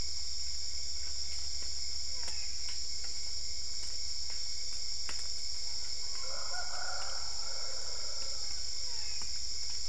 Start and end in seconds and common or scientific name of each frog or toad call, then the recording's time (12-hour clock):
2.0	2.8	brown-spotted dwarf frog
8.8	9.5	brown-spotted dwarf frog
3:45am